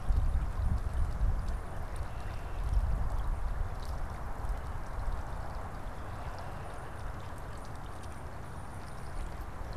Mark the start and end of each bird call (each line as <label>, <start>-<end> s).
Tufted Titmouse (Baeolophus bicolor), 0.0-9.8 s